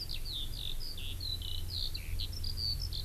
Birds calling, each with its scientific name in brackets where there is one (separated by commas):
Eurasian Skylark (Alauda arvensis)